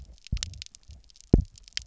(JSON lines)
{"label": "biophony, double pulse", "recorder": "SoundTrap 300"}